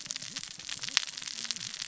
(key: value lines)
label: biophony, cascading saw
recorder: SoundTrap 600 or HydroMoth